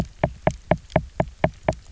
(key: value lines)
label: biophony, knock
recorder: SoundTrap 300